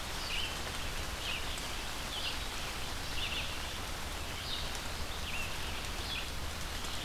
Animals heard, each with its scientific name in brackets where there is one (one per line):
Red-eyed Vireo (Vireo olivaceus)